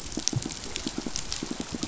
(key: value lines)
label: biophony, pulse
recorder: SoundTrap 500